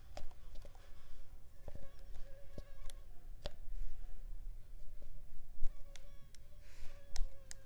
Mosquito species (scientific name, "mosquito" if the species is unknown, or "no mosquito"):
Culex pipiens complex